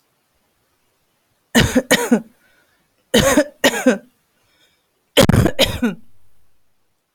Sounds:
Cough